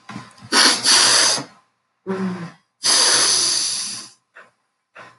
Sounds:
Sniff